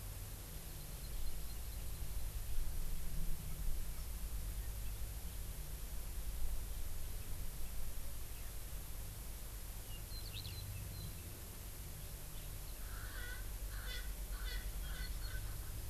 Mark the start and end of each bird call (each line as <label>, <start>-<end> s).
Eurasian Skylark (Alauda arvensis), 10.2-10.6 s
Erckel's Francolin (Pternistis erckelii), 12.8-15.7 s